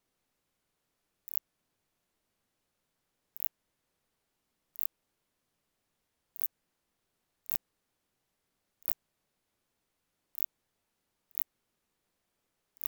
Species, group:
Phaneroptera nana
Orthoptera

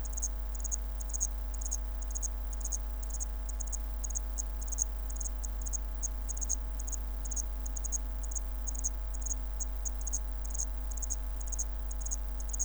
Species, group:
Zvenella geniculata
Orthoptera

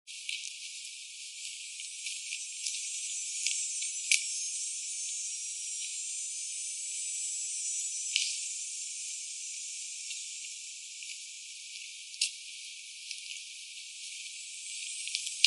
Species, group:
Neotibicen canicularis
Cicadidae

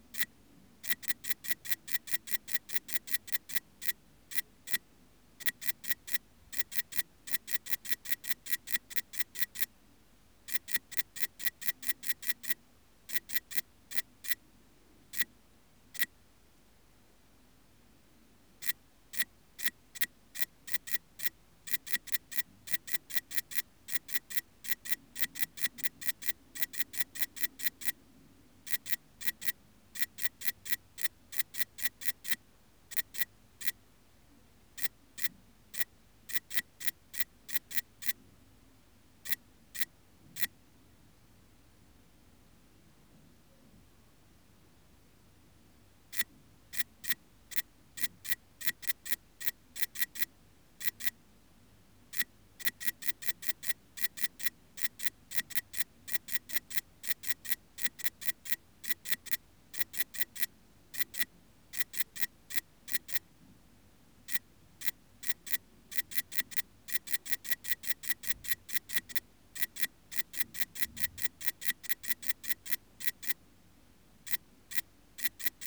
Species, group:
Tessellana tessellata
Orthoptera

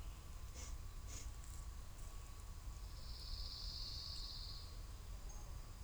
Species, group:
Magicicada tredecim
Cicadidae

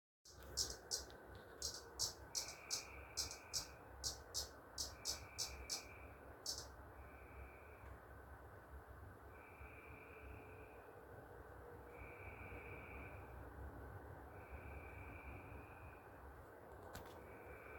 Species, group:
Magicicada septendecula
Cicadidae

